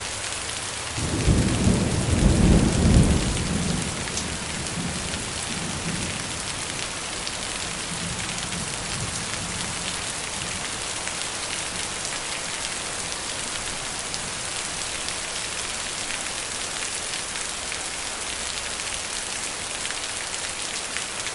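0.0s Heavy rain. 21.3s
1.3s Thunder sounds in the background. 3.2s

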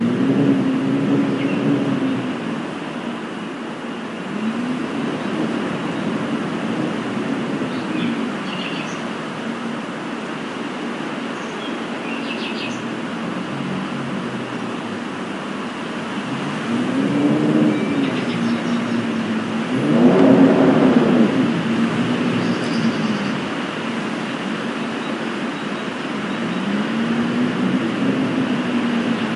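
0.0s The wind howls continuously nearby. 29.4s
1.5s A bird chirps outdoors. 1.9s
8.4s A bird chirps outdoors. 10.4s
11.6s A bird chirps outdoors. 13.7s
18.5s A bird chirps outdoors. 19.4s
23.0s A bird chirps outdoors. 23.8s
26.9s A bird chirps outdoors. 27.5s

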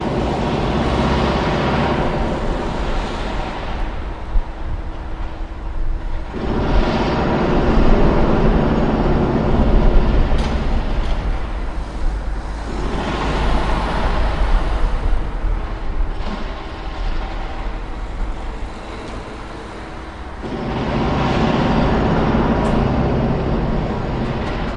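0.0s A jackhammer rattles at a construction site. 4.1s
4.1s A vehicle engine idles at a construction site. 6.3s
5.5s Background noise from a construction site. 6.3s
6.3s A jackhammer rattles at a construction site. 11.4s
10.2s A repeated rattling noise in the background of a construction site. 11.4s
11.4s A vehicle starts up and drives away from a construction site. 20.4s
16.1s Rattling noise in the background. 18.0s
20.4s A jackhammer rattles at a construction site. 24.8s
24.1s Background noise from a construction site. 24.8s

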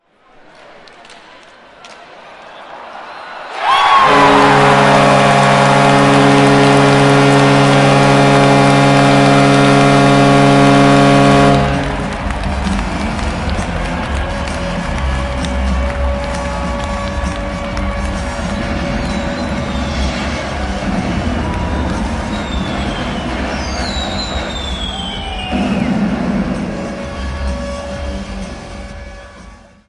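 0.0s People cheering and applauding in the background. 29.9s
3.9s A goal horn sounds steadily. 11.7s
26.9s A goal horn sounds steadily. 29.9s

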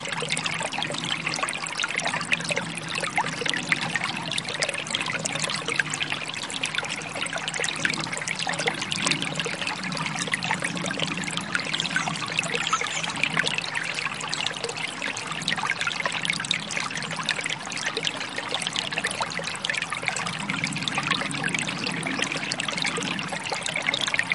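0.1s Peaceful forest ambience with gentle water droplets in a creek. 11.8s
12.1s Water droplets falling into a creek with subtle insect sounds in a peaceful winter forest. 24.3s

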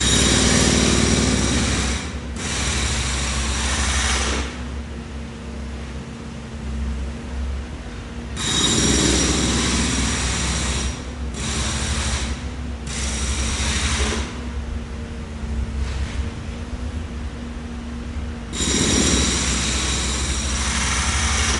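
0.0s A loud jackhammer operating in a repeating pattern. 21.6s

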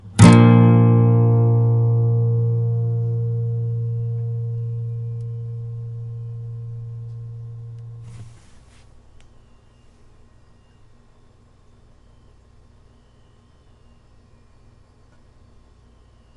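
0.2s One guitar chord is played and the sound fades. 8.4s

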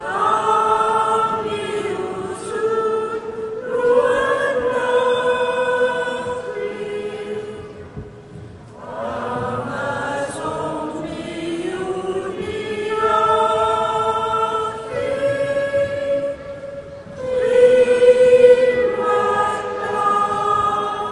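0.0s A choir of men and women singing in a church. 21.1s

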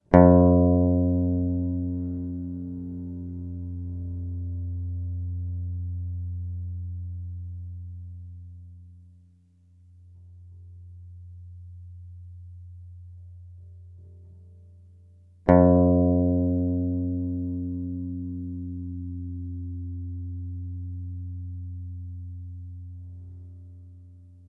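0.0s A guitar plays a single note that gradually fades out. 10.0s
15.4s A guitar plays a single note that gradually fades out. 24.5s

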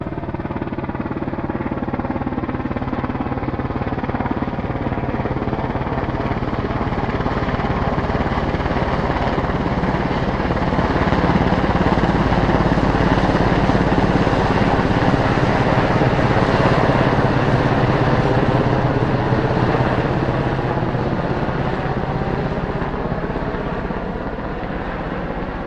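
0.1s A helicopter flies overhead, increasing in volume as it approaches, then fading away into the distance. 25.7s

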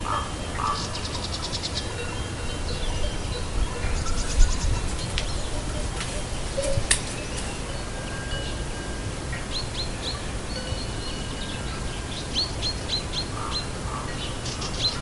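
0.0s Goat bells ringing. 15.0s
0.5s A bird is twittering. 2.0s
3.6s A bird is twittering. 5.8s
9.3s Birds twittering. 15.0s

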